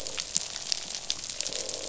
{"label": "biophony, croak", "recorder": "SoundTrap 500"}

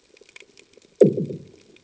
{"label": "anthrophony, bomb", "recorder": "HydroMoth"}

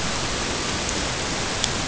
{"label": "ambient", "recorder": "HydroMoth"}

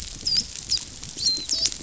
{"label": "biophony, dolphin", "recorder": "SoundTrap 500"}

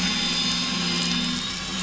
{"label": "anthrophony, boat engine", "recorder": "SoundTrap 500"}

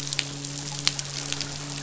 {"label": "biophony, midshipman", "recorder": "SoundTrap 500"}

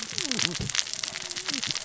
{"label": "biophony, cascading saw", "recorder": "SoundTrap 600 or HydroMoth"}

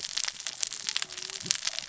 {"label": "biophony, cascading saw", "recorder": "SoundTrap 600 or HydroMoth"}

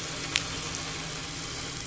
{"label": "anthrophony, boat engine", "recorder": "SoundTrap 500"}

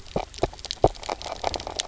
{"label": "biophony, knock croak", "recorder": "SoundTrap 300"}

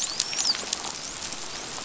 {"label": "biophony, dolphin", "recorder": "SoundTrap 500"}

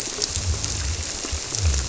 {"label": "biophony", "recorder": "SoundTrap 300"}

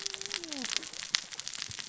{"label": "biophony, cascading saw", "recorder": "SoundTrap 600 or HydroMoth"}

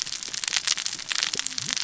{"label": "biophony, cascading saw", "recorder": "SoundTrap 600 or HydroMoth"}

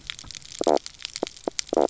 {"label": "biophony, knock croak", "recorder": "SoundTrap 300"}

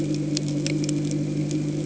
{"label": "anthrophony, boat engine", "recorder": "HydroMoth"}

